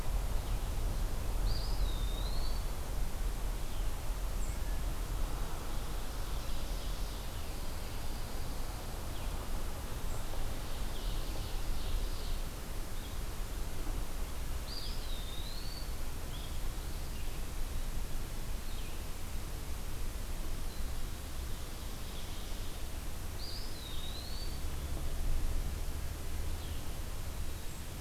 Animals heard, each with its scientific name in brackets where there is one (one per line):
Blue-headed Vireo (Vireo solitarius)
Ovenbird (Seiurus aurocapilla)
Pine Warbler (Setophaga pinus)
Eastern Wood-Pewee (Contopus virens)